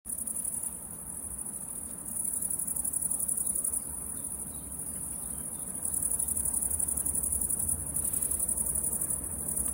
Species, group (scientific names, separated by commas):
Tettigonia viridissima, Orthoptera